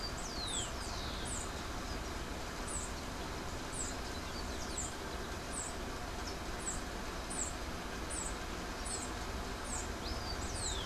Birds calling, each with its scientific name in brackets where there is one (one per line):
unidentified bird
Rufous-collared Sparrow (Zonotrichia capensis)